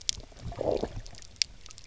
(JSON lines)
{"label": "biophony, low growl", "recorder": "SoundTrap 300"}